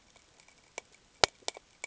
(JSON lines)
{"label": "ambient", "recorder": "HydroMoth"}